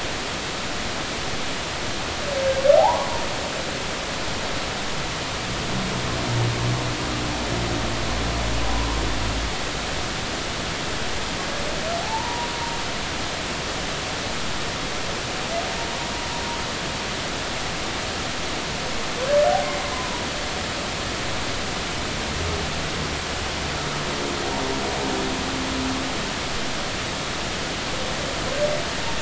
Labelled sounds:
2.8	3.3	humpback whale, 0.80 to 1.2 kHz
12.0	12.5	humpback whale, 0.80 to 1.0 kHz
19.9	20.2	humpback whale, 0.90 to 1.1 kHz

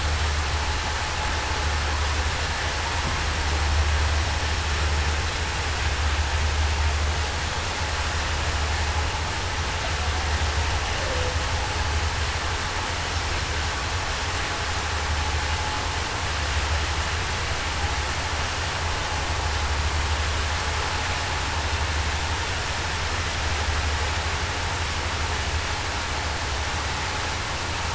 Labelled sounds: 10.9	11.4	humpback whale, 0.47 to 0.61 kHz

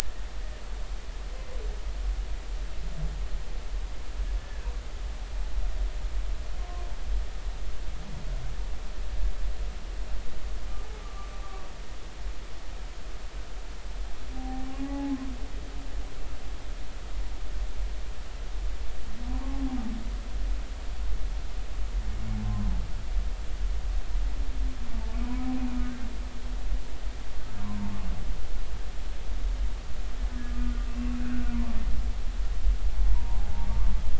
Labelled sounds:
11.0	11.7	humpback whale, 1.1 to 1.2 kHz
14.3	15.2	humpback whale, 0.80 to 0.90 kHz
19.4	19.7	humpback whale, 0.80 to 0.96 kHz
22.4	22.7	humpback whale, 0.99 to 1.1 kHz
25.8	26.1	humpback whale, 1.4 to 1.6 kHz
30.9	31.2	humpback whale, 2.6 to 2.8 kHz
33.1	33.7	humpback whale, 0.80 to 1.1 kHz

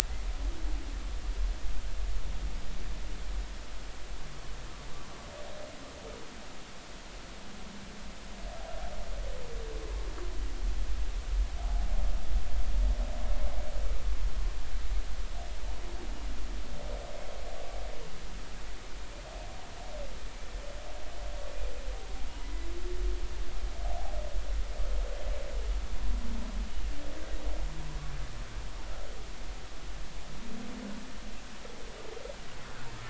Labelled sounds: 11.6	11.9	humpback whale, 0.80 to 0.86 kHz

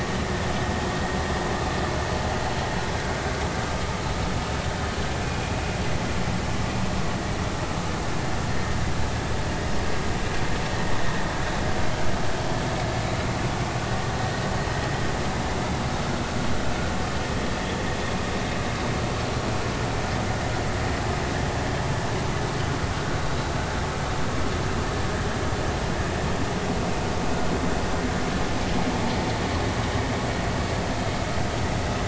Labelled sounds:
13.8	14.1	vessel noise, 1.8 to 1.9 kHz
23.5	23.8	vessel noise, 1.5 to 1.7 kHz

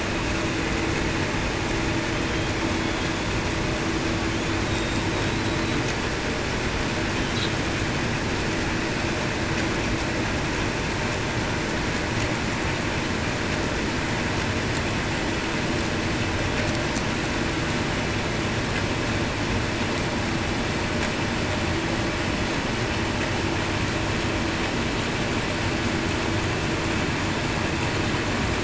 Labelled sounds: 4.7	5.0	killer whale, Bigg's (transient), 3.7 to 3.8 kHz

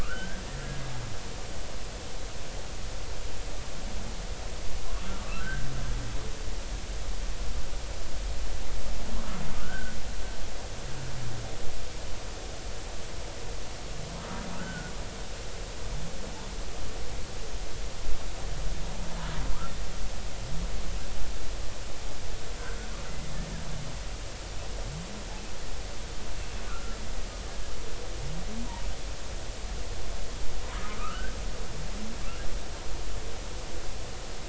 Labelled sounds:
0.0	0.4	humpback whale, 1.1 to 1.7 kHz
5.2	5.7	humpback whale, 1.1 to 1.7 kHz
9.6	10.0	humpback whale, 1.3 to 1.6 kHz
14.5	14.9	humpback whale, 1.2 to 1.6 kHz
26.7	27.0	humpback whale, 1.2 to 1.5 kHz
30.7	31.3	humpback whale, 0.93 to 1.8 kHz

